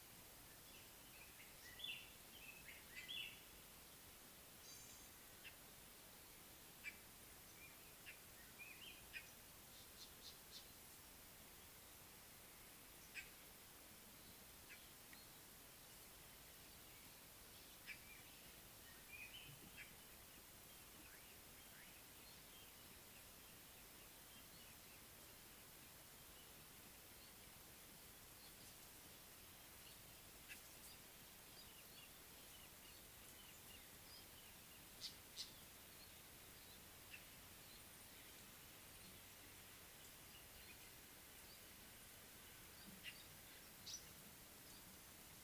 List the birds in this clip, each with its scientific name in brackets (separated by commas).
Crested Francolin (Ortygornis sephaena), Northern Puffback (Dryoscopus gambensis), Gray-backed Camaroptera (Camaroptera brevicaudata), White-bellied Go-away-bird (Corythaixoides leucogaster), White-browed Robin-Chat (Cossypha heuglini), African Paradise-Flycatcher (Terpsiphone viridis)